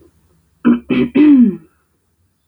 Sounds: Throat clearing